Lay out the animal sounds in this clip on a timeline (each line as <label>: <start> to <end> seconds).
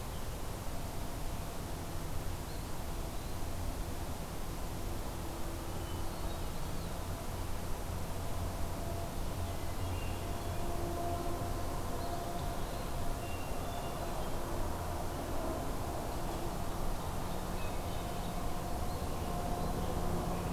Eastern Wood-Pewee (Contopus virens): 2.4 to 3.5 seconds
Hermit Thrush (Catharus guttatus): 5.6 to 6.5 seconds
Eastern Wood-Pewee (Contopus virens): 6.3 to 6.9 seconds
Hermit Thrush (Catharus guttatus): 9.6 to 10.7 seconds
Hermit Thrush (Catharus guttatus): 13.0 to 14.5 seconds
Ovenbird (Seiurus aurocapilla): 16.5 to 18.7 seconds
Hermit Thrush (Catharus guttatus): 17.5 to 18.5 seconds